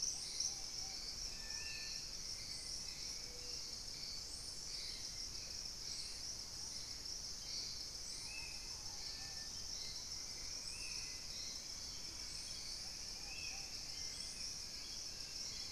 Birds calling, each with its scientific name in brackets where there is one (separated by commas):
Collared Trogon (Trogon collaris), Purple-throated Fruitcrow (Querula purpurata), Hauxwell's Thrush (Turdus hauxwelli), Spot-winged Antshrike (Pygiptila stellaris), Ruddy Pigeon (Patagioenas subvinacea)